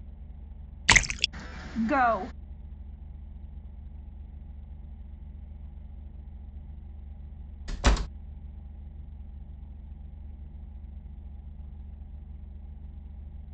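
A constant background noise remains about 25 decibels below the sounds. At 0.87 seconds, there is splashing. After that, at 1.76 seconds, someone says "Go." Finally, at 7.67 seconds, a wooden door closes.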